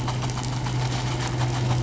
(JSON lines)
{"label": "anthrophony, boat engine", "recorder": "SoundTrap 500"}